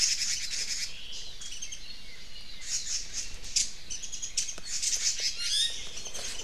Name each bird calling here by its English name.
Red-billed Leiothrix, Omao, Warbling White-eye, Iiwi